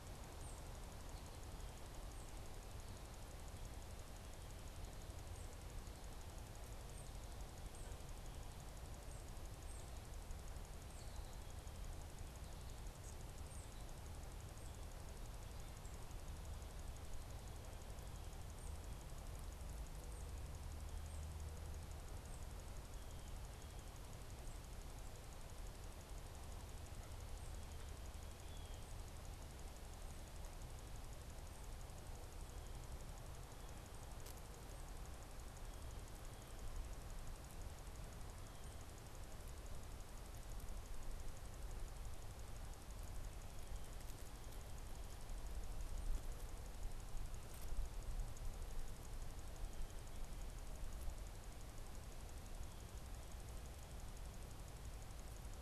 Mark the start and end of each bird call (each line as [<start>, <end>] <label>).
[0.00, 9.79] unidentified bird
[13.19, 21.49] unidentified bird
[28.39, 28.99] Blue Jay (Cyanocitta cristata)